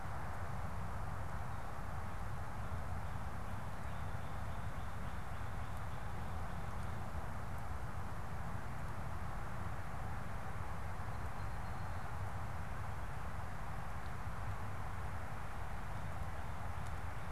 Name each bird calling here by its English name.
Northern Cardinal, Song Sparrow